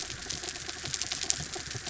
{"label": "anthrophony, mechanical", "recorder": "SoundTrap 300"}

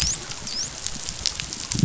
{"label": "biophony, dolphin", "recorder": "SoundTrap 500"}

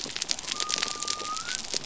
{"label": "biophony", "recorder": "SoundTrap 300"}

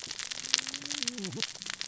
{"label": "biophony, cascading saw", "recorder": "SoundTrap 600 or HydroMoth"}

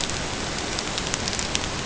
{"label": "ambient", "recorder": "HydroMoth"}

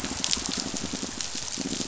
{"label": "biophony, pulse", "recorder": "SoundTrap 500"}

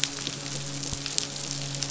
{"label": "biophony, midshipman", "recorder": "SoundTrap 500"}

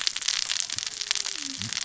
{"label": "biophony, cascading saw", "recorder": "SoundTrap 600 or HydroMoth"}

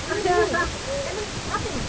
{"label": "ambient", "recorder": "HydroMoth"}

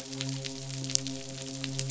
{"label": "biophony, midshipman", "recorder": "SoundTrap 500"}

